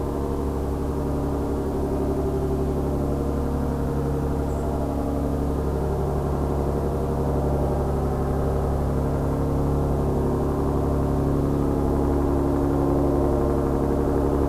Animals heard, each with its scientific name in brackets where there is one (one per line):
White-throated Sparrow (Zonotrichia albicollis)